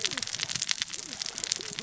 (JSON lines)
{"label": "biophony, cascading saw", "recorder": "SoundTrap 600 or HydroMoth"}